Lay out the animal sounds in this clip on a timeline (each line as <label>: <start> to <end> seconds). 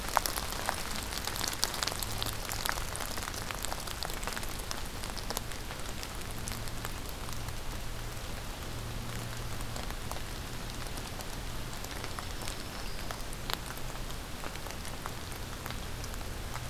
Black-throated Green Warbler (Setophaga virens): 12.0 to 13.3 seconds